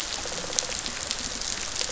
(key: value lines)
label: biophony, rattle response
recorder: SoundTrap 500